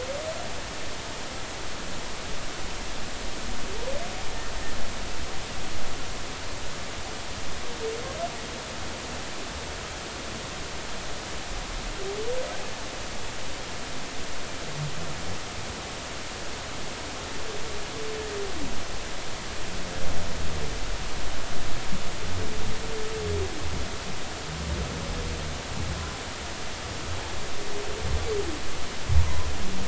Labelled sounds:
29.2	29.5	humpback whale, 0.93 to 1.1 kHz

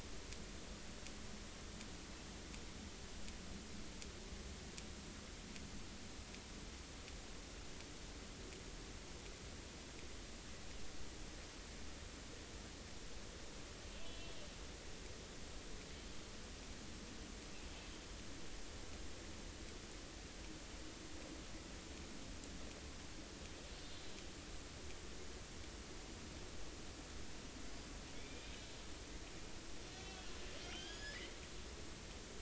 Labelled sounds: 14.0	14.3	killer whale, northern resident, A clan, 2.9 to 3.4 kHz
23.7	24.1	killer whale, northern resident, A clan, 3.4 to 4.4 kHz
28.1	28.7	killer whale, northern resident, A clan, 2.1 to 3.7 kHz
30.6	31.2	killer whale, northern resident, A clan, AA subclan, A05 pod, call N09iii, 1.5 to 6.9 kHz

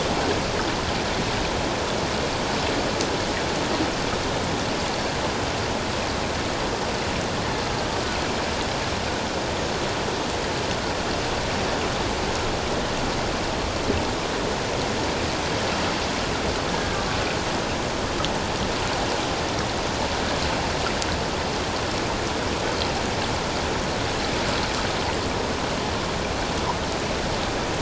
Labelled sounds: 16.7	17.1	killer whale, Bigg's (transient), 1.5 to 1.7 kHz

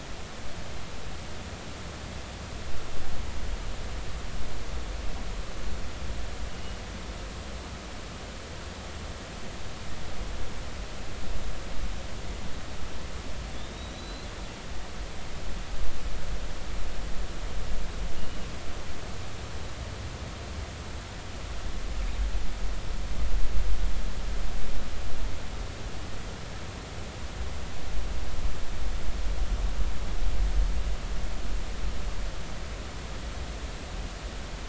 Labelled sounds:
6.5	6.8	killer whale, 2.8 to 3.0 kHz
13.5	14.3	killer whale, northern resident, G clan, 3.3 to 4.2 kHz
18.2	18.5	killer whale, 2.8 to 2.9 kHz

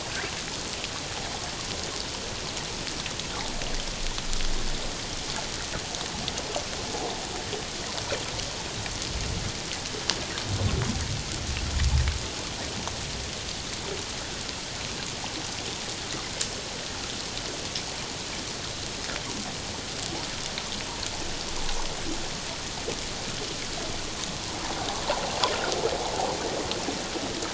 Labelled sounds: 26.0	26.3	water noise, 0.78 to 0.97 kHz

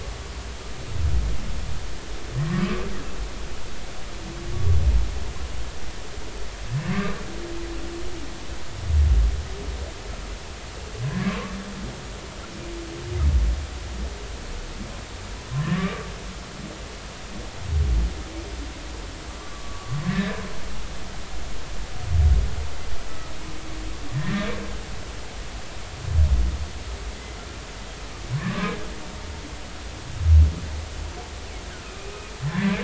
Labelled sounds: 2.5	2.9	humpback whale, 1.0 to 2.4 kHz
11.0	11.4	humpback whale, 0.99 to 1.2 kHz
15.5	16.1	humpback whale, 0.99 to 1.2 kHz
19.4	20.3	humpback whale, 1.0 to 1.8 kHz
24.1	24.5	humpback whale, 1.8 to 1.9 kHz
28.4	28.8	humpback whale, 0.96 to 1.3 kHz
32.0	32.8	humpback whale, 1.6 to 2.6 kHz

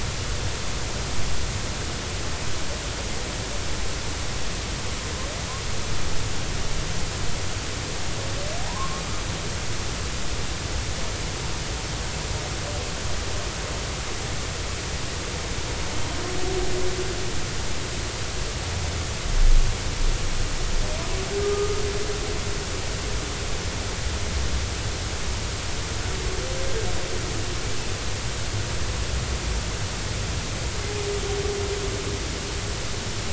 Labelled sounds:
8.6	9.0	humpback whale, 0.80 to 1.2 kHz
21.4	21.7	humpback whale, 1.2 to 1.3 kHz

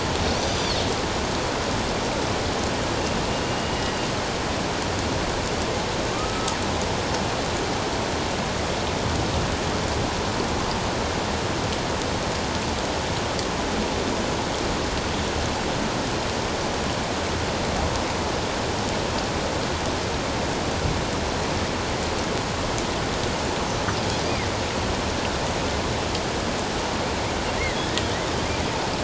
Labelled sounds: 0.3	0.8	killer whale, northern resident, A clan, AB subclan, 4.2 to 6.0 kHz
3.4	3.9	killer whale, northern resident, A clan, AB subclan, 2.8 to 2.9 kHz
6.1	6.5	killer whale, northern resident, A clan, AB subclan, 1.1 to 1.4 kHz

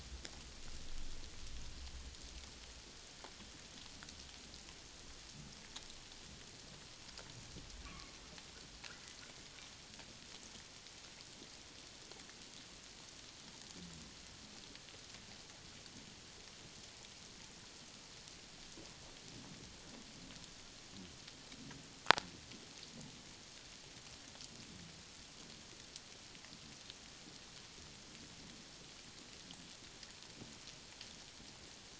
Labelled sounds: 7.8	8.1	humpback whale, 1.0 to 1.2 kHz

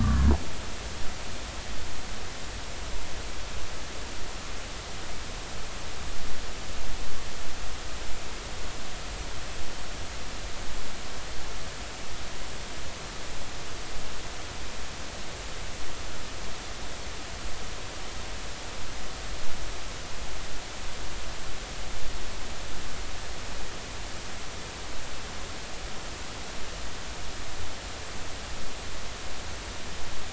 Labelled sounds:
0.0	0.3	humpback whale, 1.1 to 1.2 kHz

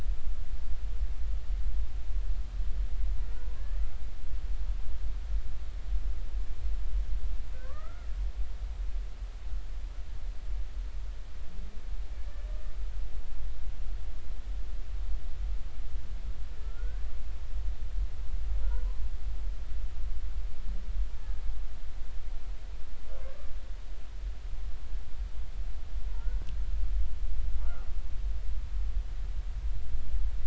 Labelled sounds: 3.2	3.6	humpback whale, 0.93 to 1.5 kHz
7.5	8.1	humpback whale, 0.99 to 2.0 kHz
16.6	17.0	humpback whale, 1.3 to 1.7 kHz
26.1	26.4	humpback whale, 1.3 to 1.5 kHz
27.6	27.9	humpback whale, 1.1 to 1.5 kHz

